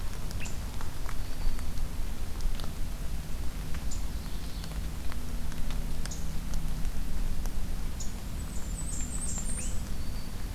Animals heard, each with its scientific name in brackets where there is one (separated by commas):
Blackburnian Warbler (Setophaga fusca), unidentified call, Black-throated Green Warbler (Setophaga virens), Ovenbird (Seiurus aurocapilla)